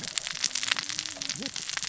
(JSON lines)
{"label": "biophony, cascading saw", "recorder": "SoundTrap 600 or HydroMoth"}